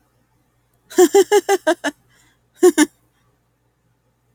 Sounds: Laughter